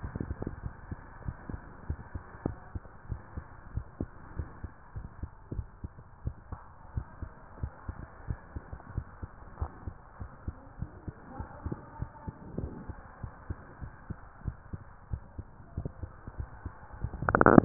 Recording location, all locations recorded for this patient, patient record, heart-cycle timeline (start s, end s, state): mitral valve (MV)
aortic valve (AV)+pulmonary valve (PV)+tricuspid valve (TV)+mitral valve (MV)
#Age: Child
#Sex: Male
#Height: 125.0 cm
#Weight: 36.1 kg
#Pregnancy status: False
#Murmur: Present
#Murmur locations: pulmonary valve (PV)+tricuspid valve (TV)
#Most audible location: pulmonary valve (PV)
#Systolic murmur timing: Early-systolic
#Systolic murmur shape: Plateau
#Systolic murmur grading: I/VI
#Systolic murmur pitch: Low
#Systolic murmur quality: Blowing
#Diastolic murmur timing: nan
#Diastolic murmur shape: nan
#Diastolic murmur grading: nan
#Diastolic murmur pitch: nan
#Diastolic murmur quality: nan
#Outcome: Abnormal
#Campaign: 2015 screening campaign
0.00	2.60	unannotated
2.60	2.72	systole
2.72	2.82	S2
2.82	3.08	diastole
3.08	3.22	S1
3.22	3.34	systole
3.34	3.44	S2
3.44	3.70	diastole
3.70	3.88	S1
3.88	4.00	systole
4.00	4.10	S2
4.10	4.36	diastole
4.36	4.50	S1
4.50	4.61	systole
4.61	4.72	S2
4.72	4.93	diastole
4.93	5.10	S1
5.10	5.20	systole
5.20	5.30	S2
5.30	5.52	diastole
5.52	5.67	S1
5.67	5.82	systole
5.82	5.92	S2
5.92	6.22	diastole
6.22	6.38	S1
6.38	6.50	systole
6.50	6.60	S2
6.60	6.94	diastole
6.94	7.08	S1
7.08	7.20	systole
7.20	7.28	S2
7.28	7.58	diastole
7.58	7.72	S1
7.72	7.86	systole
7.86	7.98	S2
7.98	8.28	diastole
8.28	8.42	S1
8.42	8.54	systole
8.54	8.64	S2
8.64	8.92	diastole
8.92	9.10	S1
9.10	9.22	systole
9.22	9.32	S2
9.32	9.57	diastole
9.57	9.70	S1
9.70	9.84	systole
9.84	9.96	S2
9.96	10.19	diastole
10.19	10.32	S1
10.32	10.44	systole
10.44	10.56	S2
10.56	10.77	diastole
10.77	10.90	S1
10.90	11.02	systole
11.02	11.14	S2
11.14	11.38	diastole
11.38	11.48	S1
11.48	11.62	systole
11.62	11.75	S2
11.75	11.98	diastole
11.98	12.10	S1
12.10	12.22	systole
12.22	12.34	S2
12.34	12.56	diastole
12.56	12.71	S1
12.71	12.86	systole
12.86	12.98	S2
12.98	13.22	diastole
13.22	13.32	S1
13.32	13.46	systole
13.46	13.60	S2
13.60	13.79	diastole
13.79	13.94	S1
13.94	14.06	systole
14.06	14.20	S2
14.20	14.44	diastole
14.44	14.56	S1
14.56	14.72	systole
14.72	14.82	S2
14.82	15.08	diastole
15.08	15.26	S1
15.26	15.38	systole
15.38	15.48	S2
15.48	15.75	diastole
15.75	15.91	S1
15.91	16.01	systole
16.01	16.12	S2
16.12	16.19	diastole
16.19	17.65	unannotated